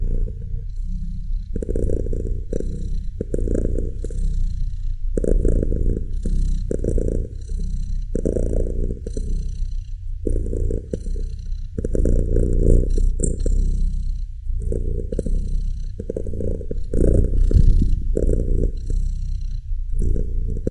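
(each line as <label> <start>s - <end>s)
A cat is purring loudly and repeatedly indoors. 0.0s - 20.7s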